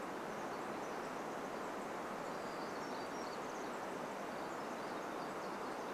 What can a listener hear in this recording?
Pacific Wren song, Townsend's Warbler call, Townsend's Warbler song